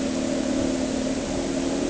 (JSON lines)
{"label": "anthrophony, boat engine", "recorder": "HydroMoth"}